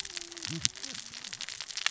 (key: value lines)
label: biophony, cascading saw
recorder: SoundTrap 600 or HydroMoth